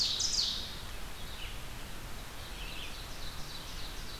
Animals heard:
Ovenbird (Seiurus aurocapilla), Red-eyed Vireo (Vireo olivaceus)

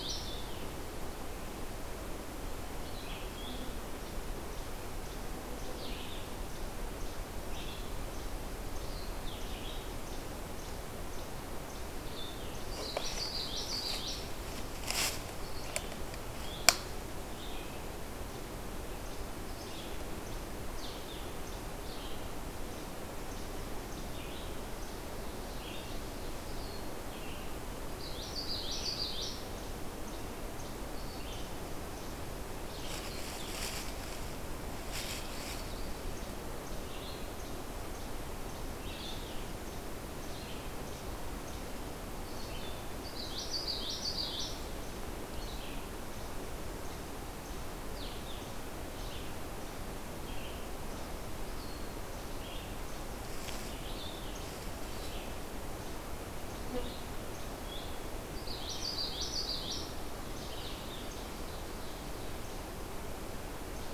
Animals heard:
Least Flycatcher (Empidonax minimus), Red-eyed Vireo (Vireo olivaceus), Common Yellowthroat (Geothlypis trichas)

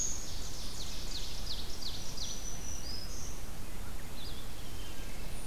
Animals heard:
Black-throated Green Warbler (Setophaga virens), Ovenbird (Seiurus aurocapilla), Wood Thrush (Hylocichla mustelina)

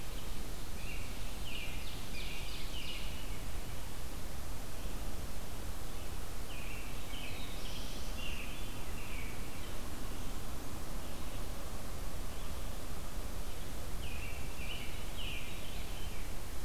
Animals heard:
Ovenbird (Seiurus aurocapilla), Veery (Catharus fuscescens), Red-eyed Vireo (Vireo olivaceus), American Robin (Turdus migratorius), Black-throated Blue Warbler (Setophaga caerulescens)

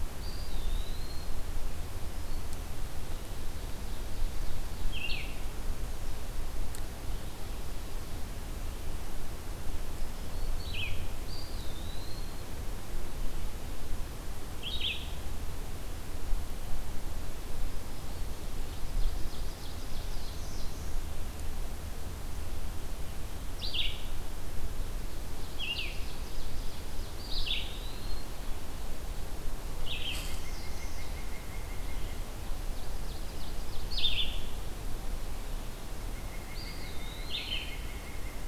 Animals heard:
Ovenbird (Seiurus aurocapilla), Eastern Wood-Pewee (Contopus virens), Blue-headed Vireo (Vireo solitarius), Black-throated Green Warbler (Setophaga virens), Black-throated Blue Warbler (Setophaga caerulescens), White-breasted Nuthatch (Sitta carolinensis)

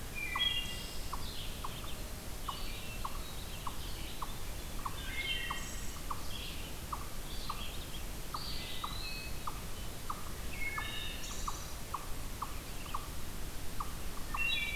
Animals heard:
Wood Thrush (Hylocichla mustelina), Eastern Wood-Pewee (Contopus virens), Red-eyed Vireo (Vireo olivaceus), unknown mammal

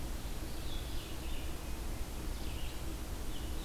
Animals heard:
Red-eyed Vireo (Vireo olivaceus)

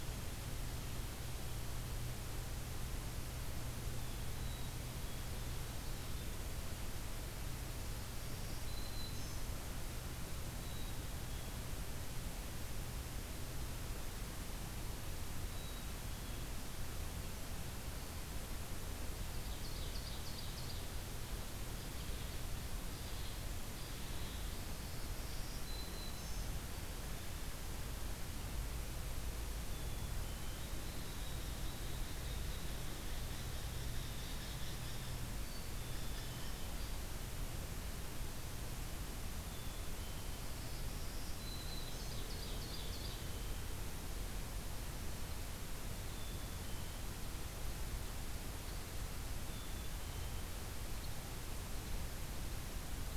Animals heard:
Ovenbird (Seiurus aurocapilla), Black-throated Green Warbler (Setophaga virens), Hairy Woodpecker (Dryobates villosus), Black-capped Chickadee (Poecile atricapillus)

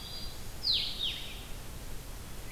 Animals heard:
Black-throated Green Warbler (Setophaga virens), Red-eyed Vireo (Vireo olivaceus), Blue-headed Vireo (Vireo solitarius)

